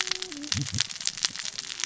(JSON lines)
{"label": "biophony, cascading saw", "recorder": "SoundTrap 600 or HydroMoth"}